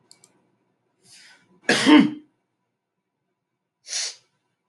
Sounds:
Sneeze